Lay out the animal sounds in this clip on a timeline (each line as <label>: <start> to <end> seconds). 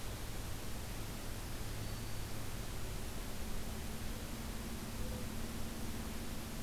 Black-throated Green Warbler (Setophaga virens): 1.7 to 2.3 seconds